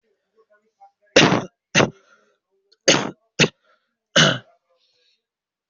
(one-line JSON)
{"expert_labels": [{"quality": "poor", "cough_type": "unknown", "dyspnea": false, "wheezing": false, "stridor": false, "choking": false, "congestion": false, "nothing": true, "diagnosis": "healthy cough", "severity": "pseudocough/healthy cough"}]}